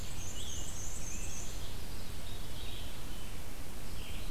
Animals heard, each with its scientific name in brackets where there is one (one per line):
Red-eyed Vireo (Vireo olivaceus)
Veery (Catharus fuscescens)
Scarlet Tanager (Piranga olivacea)
Black-and-white Warbler (Mniotilta varia)